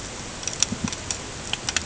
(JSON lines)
{"label": "ambient", "recorder": "HydroMoth"}